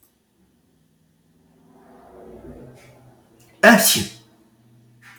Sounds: Sneeze